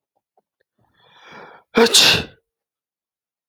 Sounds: Sneeze